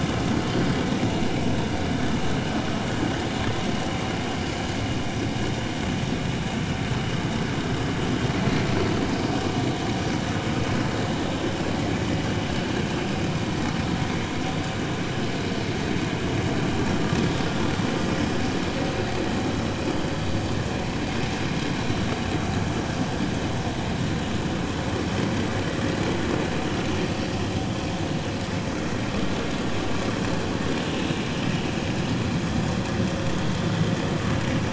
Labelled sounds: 17.2	17.5	vessel noise, 3.4 to 3.6 kHz

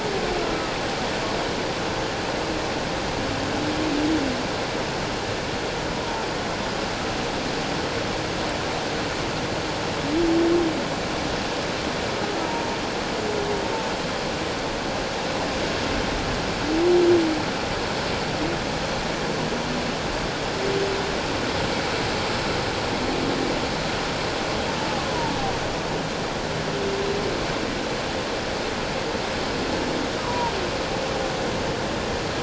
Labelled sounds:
0.4	0.7	humpback whale, 1.2 to 1.4 kHz
12.4	12.7	humpback whale, 0.88 to 1.0 kHz
25.1	25.3	humpback whale, 0.84 to 1.0 kHz
30.2	30.5	humpback whale, 0.88 to 1.2 kHz

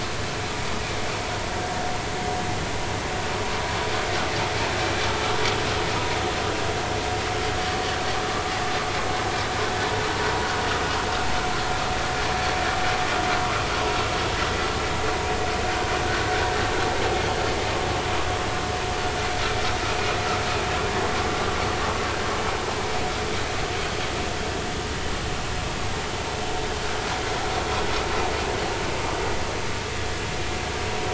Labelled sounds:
15.7	15.9	vessel noise, 1.4 to 1.6 kHz

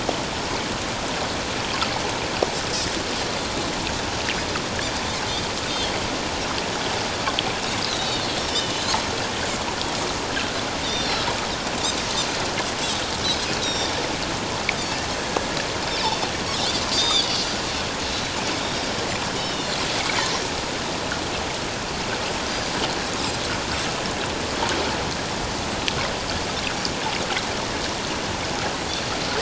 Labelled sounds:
5.7	5.9	Pacific white-sided dolphin, 3.1 to 3.8 kHz
7.8	8.3	Pacific white-sided dolphin, 2.8 to 4.2 kHz
10.8	11.3	Pacific white-sided dolphin, 3.4 to 5.9 kHz
13.6	14.0	Pacific white-sided dolphin, 3.4 to 5.8 kHz
15.9	16.3	Pacific white-sided dolphin, 3.4 to 5.5 kHz
16.9	17.3	Pacific white-sided dolphin, 3.2 to 6.2 kHz
18.1	18.4	Pacific white-sided dolphin, 3.8 to 4.0 kHz
19.4	19.7	Pacific white-sided dolphin, 2.8 to 3.9 kHz

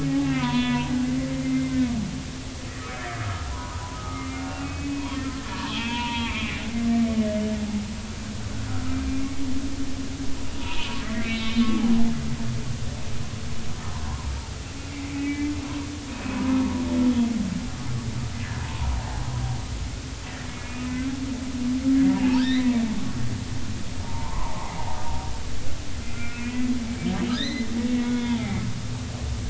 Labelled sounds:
0.1	0.9	humpback whale, 0.80 to 3.7 kHz
1.3	1.9	humpback whale, 2.0 to 2.1 kHz
2.9	5.1	humpback whale, 0.90 to 2.6 kHz
5.5	6.6	humpback whale, 0.83 to 3.4 kHz
9.2	9.4	humpback whale, 2.1 to 2.3 kHz
10.6	11.7	humpback whale, 0.86 to 4.1 kHz
14.0	14.3	humpback whale, 0.90 to 1.2 kHz
14.9	15.5	humpback whale, 1.9 to 2.4 kHz
16.6	16.8	humpback whale, 0.90 to 1.1 kHz
18.3	18.9	humpback whale, 0.80 to 2.0 kHz
20.6	21.1	humpback whale, 2.0 to 2.6 kHz
21.5	22.8	humpback whale, 0.80 to 4.2 kHz
24.0	24.7	humpback whale, 0.80 to 1.2 kHz
26.0	26.7	humpback whale, 1.3 to 2.5 kHz
27.3	28.6	humpback whale, 0.80 to 4.2 kHz

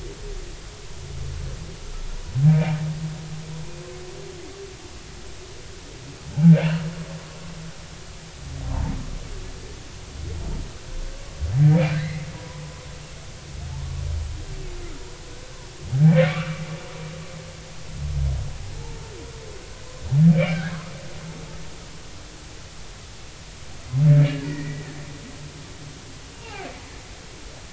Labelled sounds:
2.4	2.8	humpback whale, 2.2 to 2.4 kHz
8.7	8.9	humpback whale, 0.83 to 1.1 kHz
12.0	12.6	humpback whale, 0.93 to 2.2 kHz
16.1	16.6	humpback whale, 1.1 to 2.4 kHz
20.3	20.8	humpback whale, 1.4 to 2.5 kHz
24.4	24.9	humpback whale, 1.8 to 2.0 kHz
26.3	26.7	humpback whale, 0.80 to 2.9 kHz

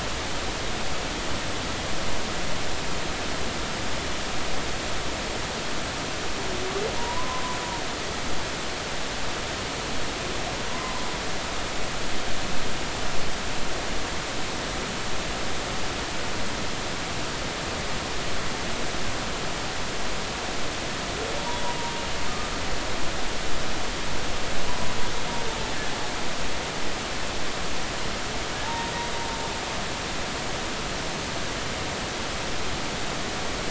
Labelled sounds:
7.0	7.4	humpback whale, 0.90 to 1.1 kHz
21.4	21.6	humpback whale, 0.90 to 1.0 kHz
24.7	24.9	humpback whale, 0.93 to 1.0 kHz
28.6	28.9	humpback whale, 0.83 to 0.99 kHz

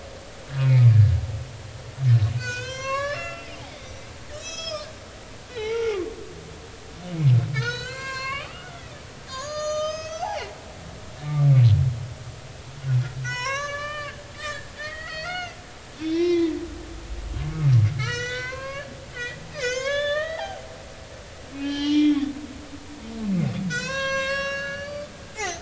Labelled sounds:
0.6	0.9	humpback whale, 2.0 to 2.6 kHz
2.4	3.6	humpback whale, 0.96 to 7.0 kHz
4.4	4.9	humpback whale, 1.1 to 8.0 kHz
5.5	6.0	humpback whale, 0.80 to 3.6 kHz
7.5	8.8	humpback whale, 0.90 to 8.0 kHz
9.3	10.3	humpback whale, 0.99 to 6.9 kHz
13.2	15.6	humpback whale, 0.93 to 7.5 kHz
16.0	16.5	humpback whale, 0.96 to 6.0 kHz
17.9	20.6	humpback whale, 0.80 to 7.0 kHz
21.6	22.2	humpback whale, 0.83 to 5.8 kHz
23.7	25.6	humpback whale, 0.80 to 7.0 kHz

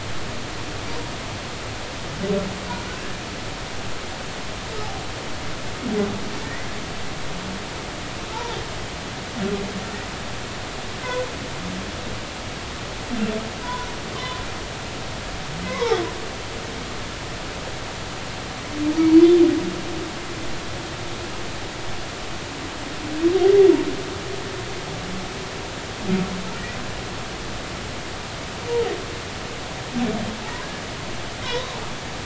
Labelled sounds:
6.4	6.7	humpback whale, 1.8 to 2.1 kHz
8.3	8.6	humpback whale, 0.80 to 1.0 kHz
11.0	11.3	humpback whale, 1.4 to 1.6 kHz
13.6	14.4	humpback whale, 0.93 to 1.5 kHz
15.6	17.0	humpback whale, 0.80 to 2.3 kHz
31.4	31.8	humpback whale, 0.90 to 4.0 kHz

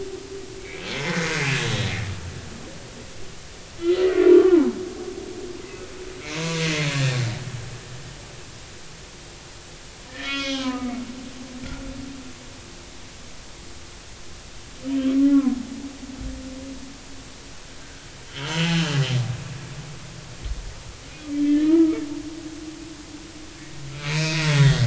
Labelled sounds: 0.6	1.5	humpback whale, 2.0 to 6.7 kHz
3.8	4.8	humpback whale, 0.80 to 2.1 kHz
6.4	6.9	humpback whale, 0.93 to 2.2 kHz
10.1	11.0	humpback whale, 0.96 to 4.7 kHz
11.6	11.9	humpback whale, 1.3 to 1.5 kHz
14.9	15.5	humpback whale, 1.2 to 3.2 kHz
17.8	19.0	humpback whale, 1.5 to 3.3 kHz
21.3	22.0	humpback whale, 1.1 to 3.3 kHz
23.9	24.8	humpback whale, 1.8 to 2.6 kHz

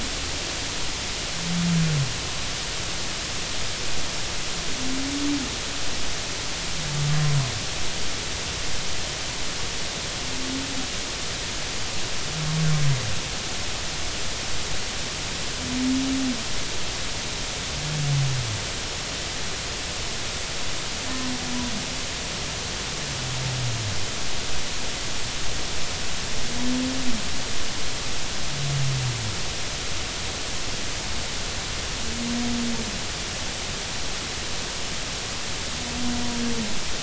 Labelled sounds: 21.1	21.3	humpback whale, 0.93 to 1.1 kHz

